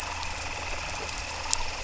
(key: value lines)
label: anthrophony, boat engine
recorder: SoundTrap 300